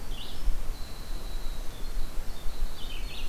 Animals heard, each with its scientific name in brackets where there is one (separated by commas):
Winter Wren (Troglodytes hiemalis), Red-eyed Vireo (Vireo olivaceus)